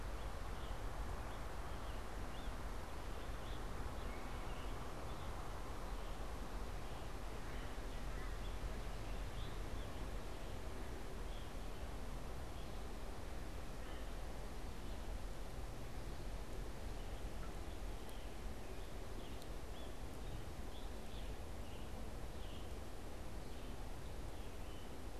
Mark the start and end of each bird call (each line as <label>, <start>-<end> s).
Scarlet Tanager (Piranga olivacea), 0.0-12.8 s
Scarlet Tanager (Piranga olivacea), 17.0-22.8 s